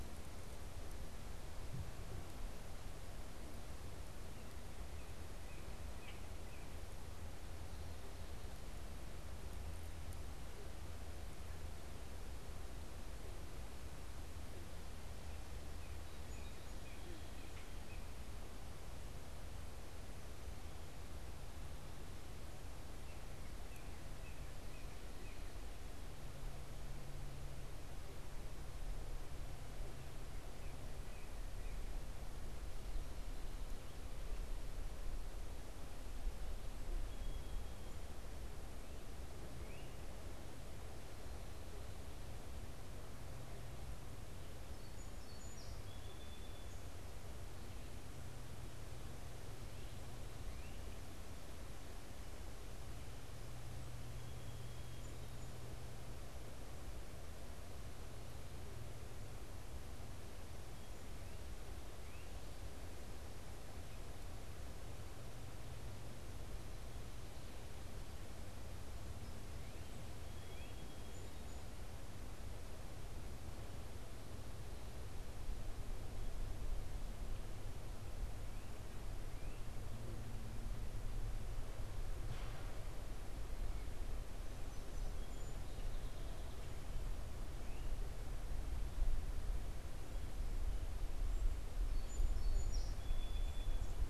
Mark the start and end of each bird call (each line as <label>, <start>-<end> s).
Northern Cardinal (Cardinalis cardinalis), 4.1-6.8 s
Common Grackle (Quiscalus quiscula), 5.8-6.3 s
Northern Cardinal (Cardinalis cardinalis), 15.3-18.1 s
Song Sparrow (Melospiza melodia), 15.4-17.8 s
Northern Cardinal (Cardinalis cardinalis), 22.7-25.5 s
Northern Cardinal (Cardinalis cardinalis), 29.8-32.1 s
Song Sparrow (Melospiza melodia), 36.8-38.0 s
Song Sparrow (Melospiza melodia), 44.4-46.9 s
Song Sparrow (Melospiza melodia), 54.0-55.9 s
Northern Cardinal (Cardinalis cardinalis), 69.2-70.9 s
Song Sparrow (Melospiza melodia), 70.0-71.4 s
Northern Cardinal (Cardinalis cardinalis), 78.1-79.8 s
Song Sparrow (Melospiza melodia), 84.4-86.4 s
Song Sparrow (Melospiza melodia), 91.5-93.9 s